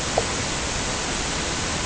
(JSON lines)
{"label": "ambient", "recorder": "HydroMoth"}